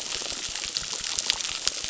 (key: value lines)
label: biophony, crackle
recorder: SoundTrap 600